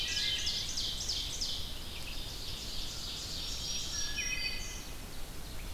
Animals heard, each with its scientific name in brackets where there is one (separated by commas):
Wood Thrush (Hylocichla mustelina), Red-eyed Vireo (Vireo olivaceus), Ovenbird (Seiurus aurocapilla), Black-throated Green Warbler (Setophaga virens)